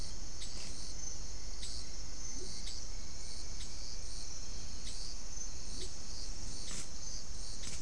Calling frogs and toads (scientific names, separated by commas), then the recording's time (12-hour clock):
Leptodactylus latrans
6:00pm